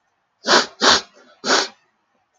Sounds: Sniff